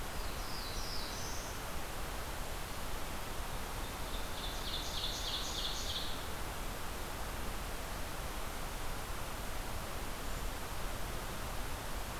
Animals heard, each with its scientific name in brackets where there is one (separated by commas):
Black-throated Blue Warbler (Setophaga caerulescens), Ovenbird (Seiurus aurocapilla)